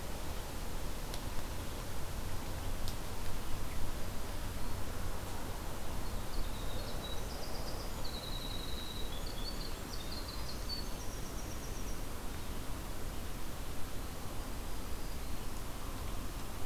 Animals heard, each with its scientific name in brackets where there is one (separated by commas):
Black-throated Green Warbler (Setophaga virens), Winter Wren (Troglodytes hiemalis)